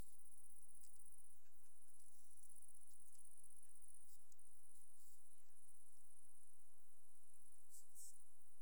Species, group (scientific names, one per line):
Tettigonia viridissima
Orthoptera